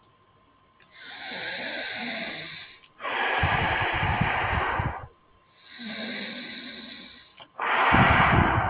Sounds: Sigh